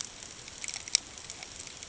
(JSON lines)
{"label": "ambient", "recorder": "HydroMoth"}